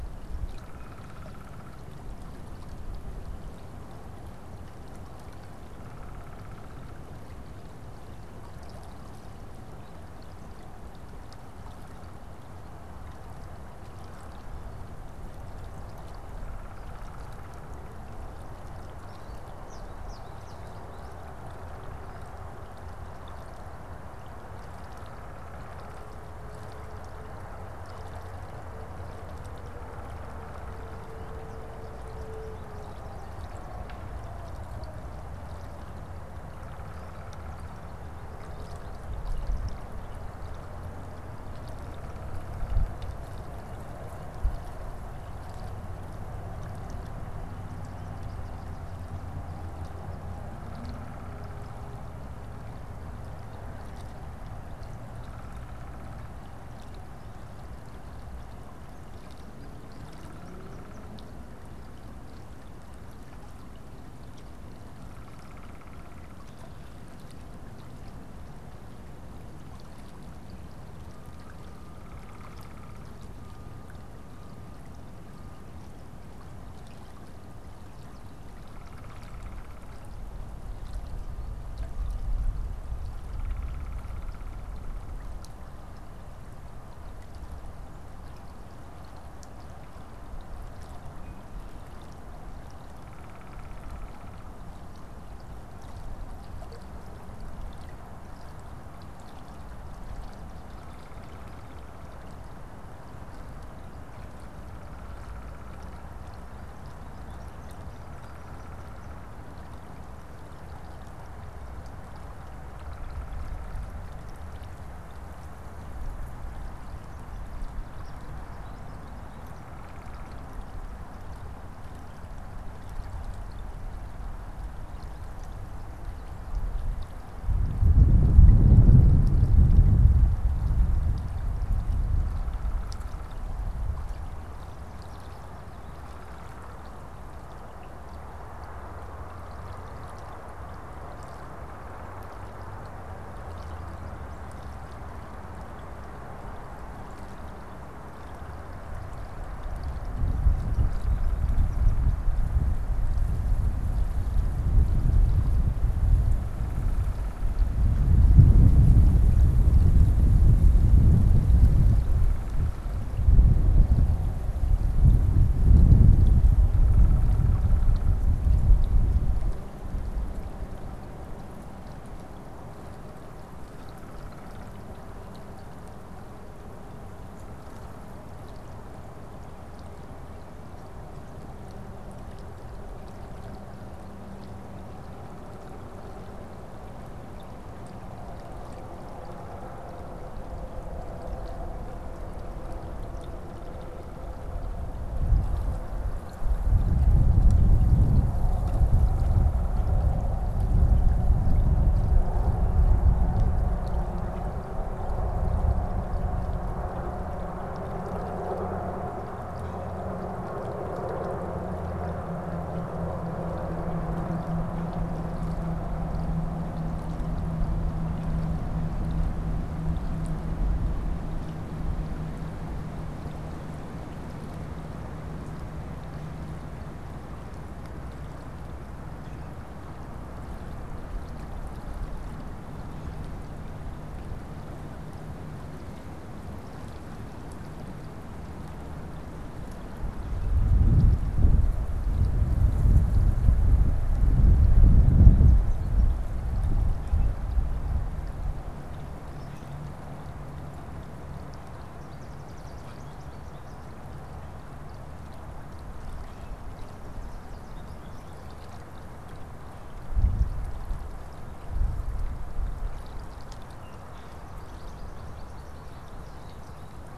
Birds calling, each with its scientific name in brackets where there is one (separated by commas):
American Goldfinch (Spinus tristis), Downy Woodpecker (Dryobates pubescens)